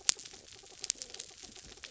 {"label": "anthrophony, mechanical", "recorder": "SoundTrap 300"}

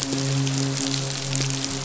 {"label": "biophony, midshipman", "recorder": "SoundTrap 500"}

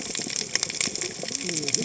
{"label": "biophony, cascading saw", "recorder": "HydroMoth"}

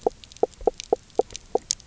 {"label": "biophony", "recorder": "SoundTrap 300"}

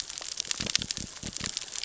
{"label": "biophony", "recorder": "SoundTrap 600 or HydroMoth"}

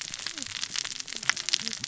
{"label": "biophony, cascading saw", "recorder": "SoundTrap 600 or HydroMoth"}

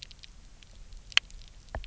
{"label": "biophony, knock", "recorder": "SoundTrap 300"}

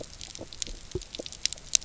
{"label": "biophony", "recorder": "SoundTrap 300"}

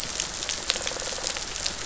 {"label": "biophony", "recorder": "SoundTrap 500"}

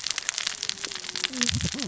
{"label": "biophony, cascading saw", "recorder": "SoundTrap 600 or HydroMoth"}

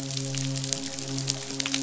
{"label": "biophony, midshipman", "recorder": "SoundTrap 500"}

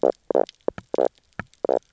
{"label": "biophony, knock croak", "recorder": "SoundTrap 300"}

